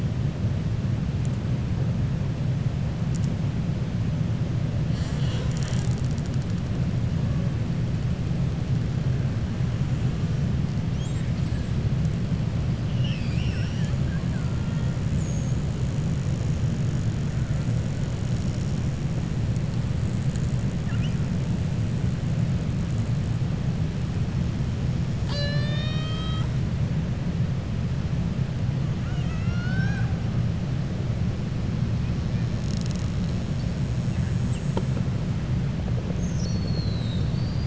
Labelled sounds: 12.9	13.9	killer whale, 1.5 to 7.3 kHz
29.0	30.1	killer whale, 0.74 to 6.5 kHz

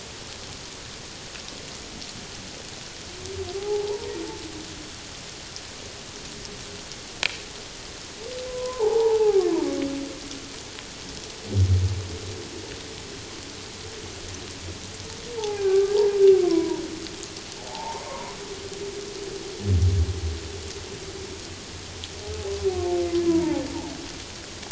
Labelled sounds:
3.6	4.2	humpback whale, 0.78 to 1.0 kHz
8.5	9.5	humpback whale, 0.78 to 1.1 kHz
15.4	16.0	humpback whale, 0.78 to 1.7 kHz
16.4	16.8	humpback whale, 0.88 to 1.1 kHz
17.7	18.4	humpback whale, 0.78 to 1.1 kHz
23.3	23.6	humpback whale, 0.78 to 1.1 kHz

